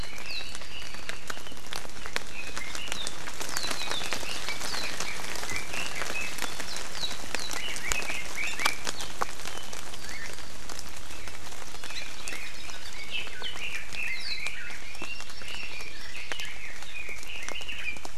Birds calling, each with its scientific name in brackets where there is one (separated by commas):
Hawaii Creeper (Loxops mana), Hawaii Amakihi (Chlorodrepanis virens), Red-billed Leiothrix (Leiothrix lutea), Warbling White-eye (Zosterops japonicus)